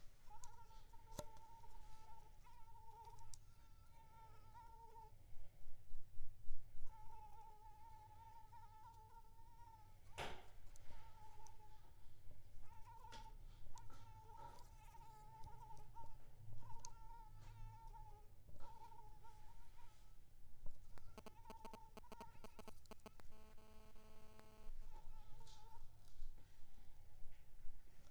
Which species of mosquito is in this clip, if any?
mosquito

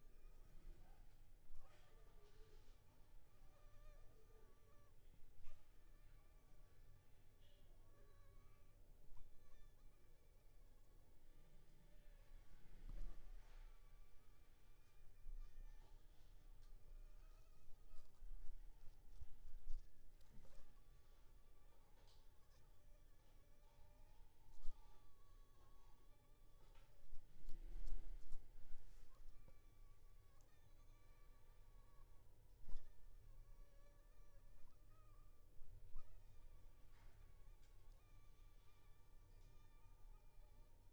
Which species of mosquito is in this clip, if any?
Anopheles funestus s.s.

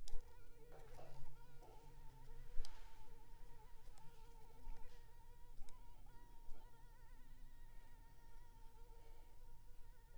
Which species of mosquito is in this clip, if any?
Culex pipiens complex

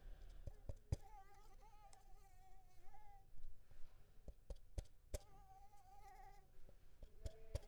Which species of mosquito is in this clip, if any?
Anopheles arabiensis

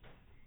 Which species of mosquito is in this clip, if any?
no mosquito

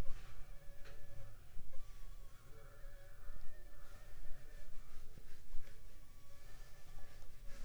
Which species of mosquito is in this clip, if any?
Anopheles funestus s.s.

